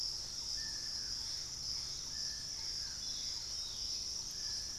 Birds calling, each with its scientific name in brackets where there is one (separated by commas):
Dusky-throated Antshrike (Thamnomanes ardesiacus), unidentified bird, Thrush-like Wren (Campylorhynchus turdinus), Gray Antbird (Cercomacra cinerascens)